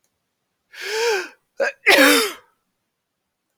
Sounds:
Sneeze